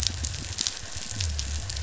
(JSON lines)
{"label": "biophony", "recorder": "SoundTrap 500"}